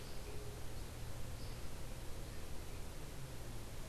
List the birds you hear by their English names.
Andean Motmot